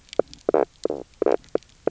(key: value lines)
label: biophony, knock croak
recorder: SoundTrap 300